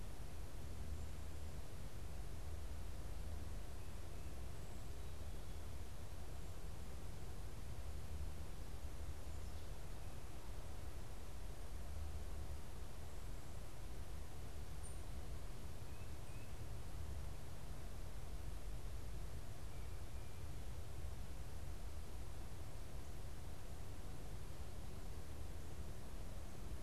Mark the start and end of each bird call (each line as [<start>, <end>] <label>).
[15.71, 16.71] Tufted Titmouse (Baeolophus bicolor)